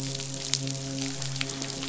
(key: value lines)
label: biophony, midshipman
recorder: SoundTrap 500